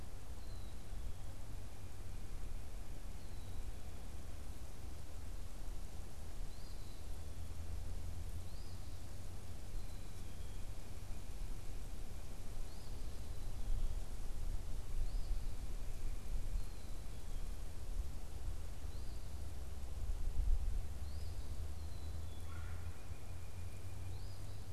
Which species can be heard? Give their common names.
Black-capped Chickadee, Eastern Phoebe, White-breasted Nuthatch, Red-bellied Woodpecker